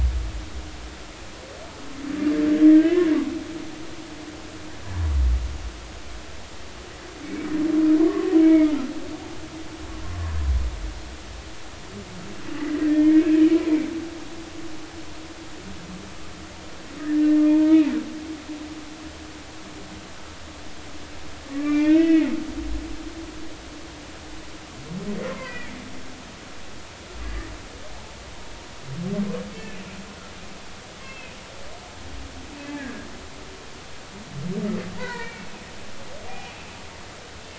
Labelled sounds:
2.7	3.1	humpback whale, 1.5 to 2.1 kHz
7.2	7.5	humpback whale, 2.1 to 2.3 kHz
8.0	8.8	humpback whale, 0.96 to 2.3 kHz
12.6	13.3	humpback whale, 1.8 to 2.4 kHz
17.2	17.8	humpback whale, 0.86 to 1.9 kHz
21.5	22.3	humpback whale, 1.8 to 3.0 kHz
25.3	25.8	humpback whale, 1.7 to 2.5 kHz
27.2	27.5	humpback whale, 1.6 to 2.0 kHz
29.5	29.8	humpback whale, 2.1 to 2.7 kHz
31.0	31.4	humpback whale, 2.0 to 2.7 kHz
32.6	33.1	humpback whale, 1.6 to 1.8 kHz
34.9	35.5	humpback whale, 0.86 to 4.6 kHz
36.3	36.5	humpback whale, 2.4 to 2.6 kHz

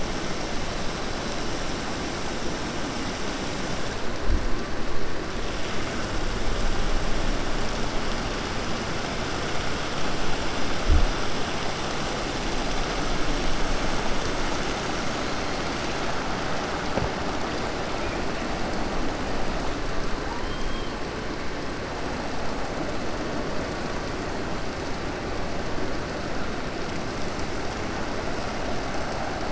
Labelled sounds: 20.4	20.9	killer whale, 3.1 to 4.2 kHz

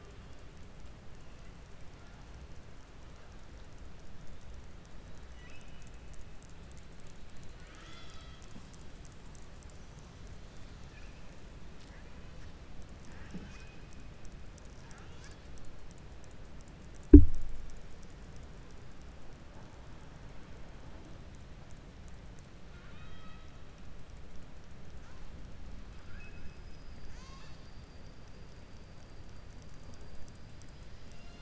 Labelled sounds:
5.3	5.9	killer whale, southern resident, 1.0 to 3.9 kHz
22.6	23.5	killer whale, southern resident, 1.2 to 4.5 kHz
25.9	26.5	killer whale, southern resident, 1.3 to 3.5 kHz

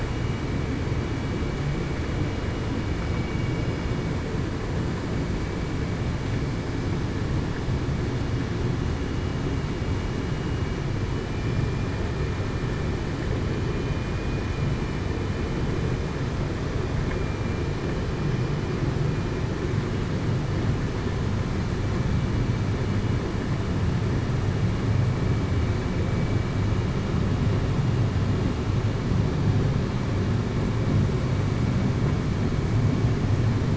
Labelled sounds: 11.1	11.5	vessel noise, 2.9 to 3.0 kHz
13.8	14.1	vessel noise, 2.4 to 2.5 kHz
17.1	17.6	vessel noise, 2.3 to 2.4 kHz

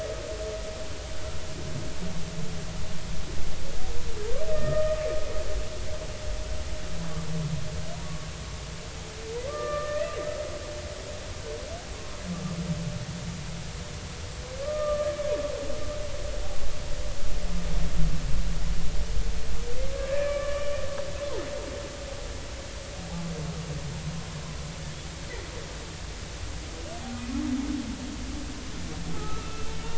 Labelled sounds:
4.5	5.0	humpback whale, 1.2 to 2.0 kHz
9.5	10.1	humpback whale, 1.1 to 2.0 kHz
11.9	12.2	humpback whale, 1.0 to 1.1 kHz
14.6	15.2	humpback whale, 1.1 to 2.0 kHz
20.0	20.7	humpback whale, 1.0 to 2.5 kHz
29.1	29.7	humpback whale, 1.2 to 2.7 kHz

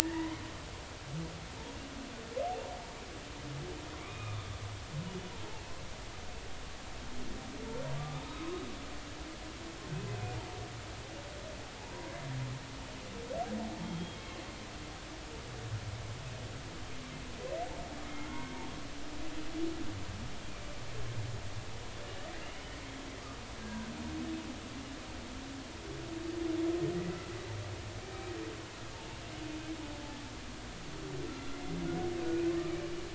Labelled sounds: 0.0	0.4	humpback whale, 0.86 to 2.1 kHz
5.0	5.4	humpback whale, 2.1 to 3.0 kHz
8.0	8.6	humpback whale, 1.1 to 1.3 kHz
10.1	10.4	humpback whale, 2.4 to 2.6 kHz
13.8	14.2	humpback whale, 3.1 to 3.3 kHz
18.1	18.6	humpback whale, 0.90 to 1.6 kHz
22.4	22.8	humpback whale, 2.6 to 3.1 kHz
23.6	23.9	humpback whale, 1.5 to 1.7 kHz
31.3	31.6	humpback whale, 1.3 to 1.4 kHz

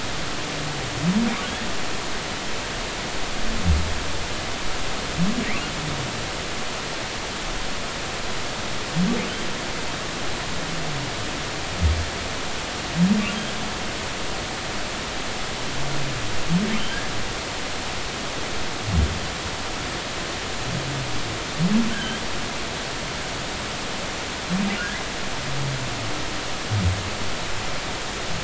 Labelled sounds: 5.4	5.7	humpback whale, 1.8 to 2.9 kHz
21.9	22.2	humpback whale, 1.5 to 1.7 kHz

